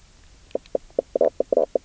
{"label": "biophony, knock croak", "recorder": "SoundTrap 300"}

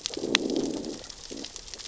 {"label": "biophony, growl", "recorder": "SoundTrap 600 or HydroMoth"}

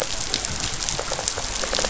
{"label": "biophony", "recorder": "SoundTrap 500"}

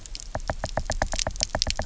{"label": "biophony, knock", "recorder": "SoundTrap 300"}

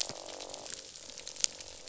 {"label": "biophony, croak", "recorder": "SoundTrap 500"}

